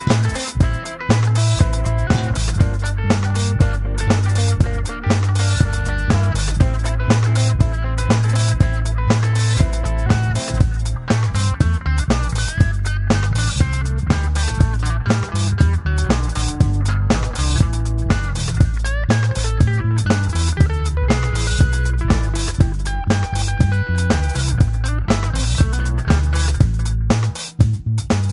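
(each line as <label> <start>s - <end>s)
A distorted bass guitar plays loudly in a rhythmic manner. 0.0s - 28.3s
A drum kit is played rhythmically. 0.0s - 28.3s
An electric guitar with a distorted, harsh sound is played rhythmically with slight reverb. 0.0s - 28.3s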